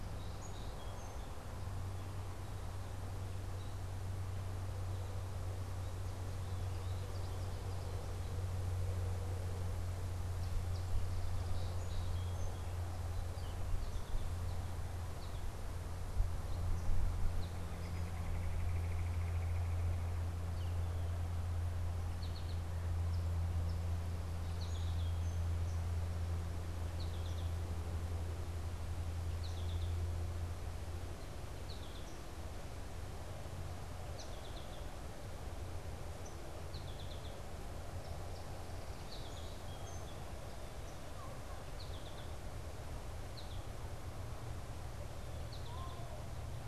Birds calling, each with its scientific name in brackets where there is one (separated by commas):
unidentified bird, Red-bellied Woodpecker (Melanerpes carolinus), Song Sparrow (Melospiza melodia), American Goldfinch (Spinus tristis)